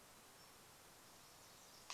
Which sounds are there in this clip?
Pacific Wren song